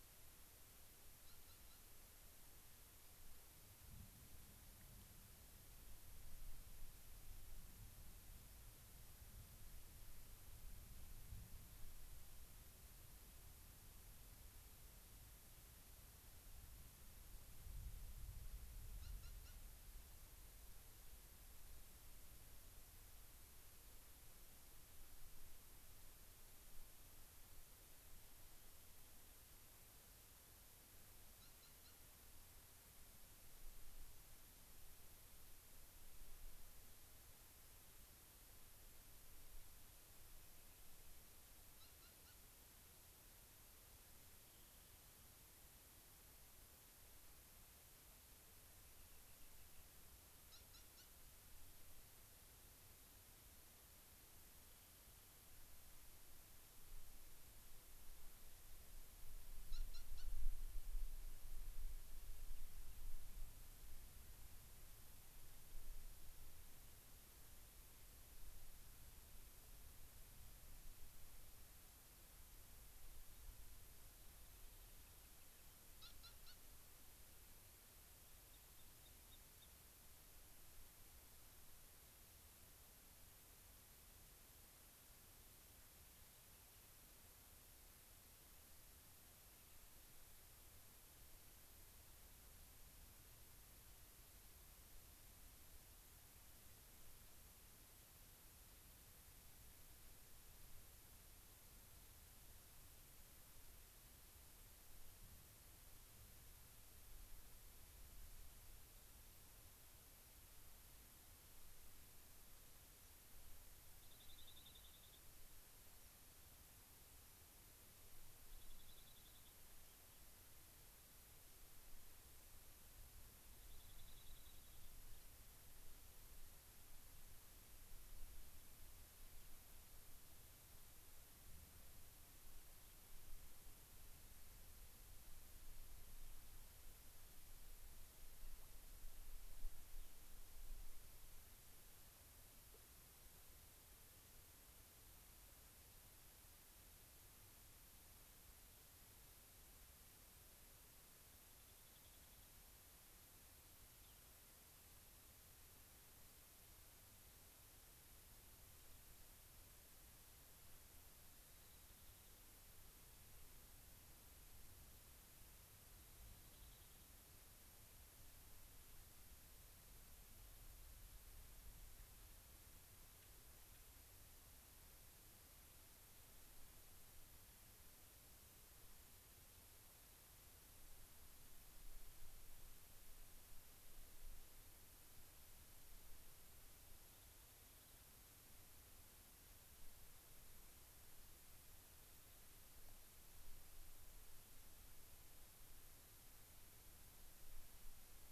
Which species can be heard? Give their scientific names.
Salpinctes obsoletus, Leucosticte tephrocotis, Haemorhous cassinii